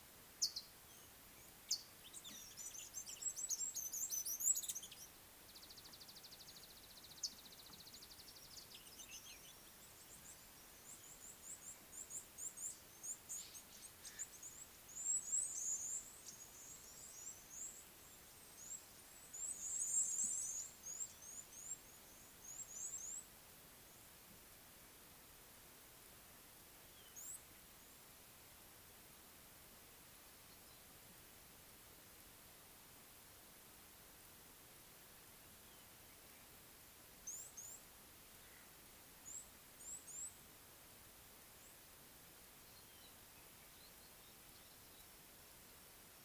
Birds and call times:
Mariqua Sunbird (Cinnyris mariquensis): 0:03.4
Red-cheeked Cordonbleu (Uraeginthus bengalus): 0:15.7, 0:20.2, 0:39.9

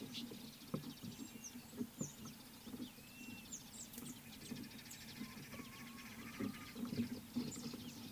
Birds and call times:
Blue-naped Mousebird (Urocolius macrourus): 0:03.2
Speckled Mousebird (Colius striatus): 0:03.9

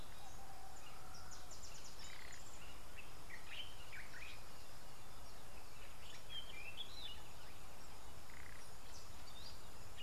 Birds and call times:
Variable Sunbird (Cinnyris venustus): 0:01.8

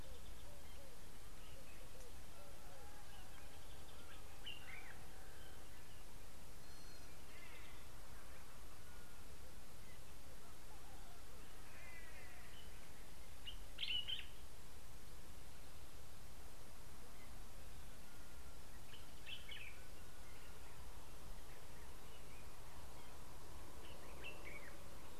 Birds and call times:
Gray-backed Camaroptera (Camaroptera brevicaudata): 0:06.9
White-bellied Go-away-bird (Corythaixoides leucogaster): 0:07.6, 0:12.0
Common Bulbul (Pycnonotus barbatus): 0:13.9, 0:19.3

